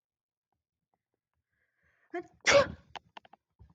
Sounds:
Sneeze